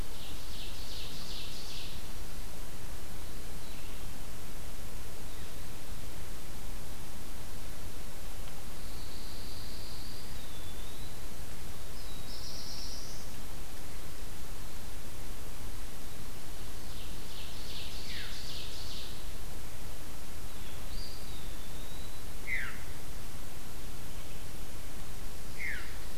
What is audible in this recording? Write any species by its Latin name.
Seiurus aurocapilla, Setophaga pinus, Contopus virens, Setophaga caerulescens, Catharus fuscescens